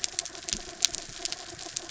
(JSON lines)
{"label": "anthrophony, mechanical", "recorder": "SoundTrap 300"}